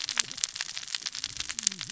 {"label": "biophony, cascading saw", "recorder": "SoundTrap 600 or HydroMoth"}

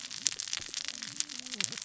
{"label": "biophony, cascading saw", "recorder": "SoundTrap 600 or HydroMoth"}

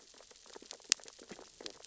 {"label": "biophony, sea urchins (Echinidae)", "recorder": "SoundTrap 600 or HydroMoth"}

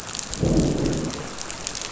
{"label": "biophony, growl", "recorder": "SoundTrap 500"}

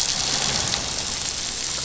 {"label": "anthrophony, boat engine", "recorder": "SoundTrap 500"}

